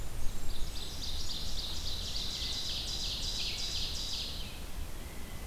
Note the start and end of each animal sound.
0.0s-1.1s: Blackburnian Warbler (Setophaga fusca)
0.0s-5.5s: Red-eyed Vireo (Vireo olivaceus)
0.4s-4.5s: Ovenbird (Seiurus aurocapilla)

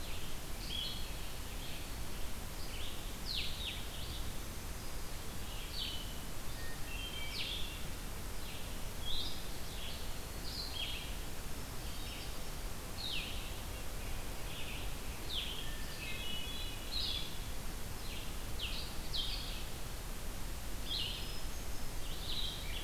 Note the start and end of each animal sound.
0.0s-22.8s: Blue-headed Vireo (Vireo solitarius)
0.0s-22.8s: Red-eyed Vireo (Vireo olivaceus)
4.1s-5.2s: Black-throated Green Warbler (Setophaga virens)
6.5s-7.7s: Hermit Thrush (Catharus guttatus)
11.4s-12.7s: Hermit Thrush (Catharus guttatus)
13.4s-15.0s: Red-breasted Nuthatch (Sitta canadensis)
15.5s-17.3s: Hermit Thrush (Catharus guttatus)
21.0s-22.2s: Hermit Thrush (Catharus guttatus)

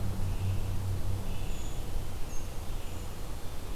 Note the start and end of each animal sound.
0.0s-1.9s: Scarlet Tanager (Piranga olivacea)
1.3s-3.2s: Brown Creeper (Certhia americana)

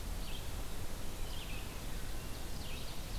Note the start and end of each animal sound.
0.0s-3.2s: Red-eyed Vireo (Vireo olivaceus)
1.8s-3.2s: Ovenbird (Seiurus aurocapilla)

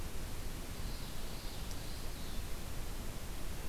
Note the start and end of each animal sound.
0.6s-2.5s: Common Yellowthroat (Geothlypis trichas)

